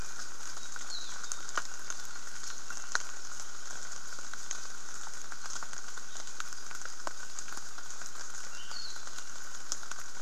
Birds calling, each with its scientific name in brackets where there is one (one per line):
Apapane (Himatione sanguinea)